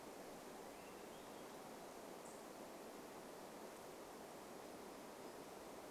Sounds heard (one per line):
Swainson's Thrush song
warbler song
unidentified bird chip note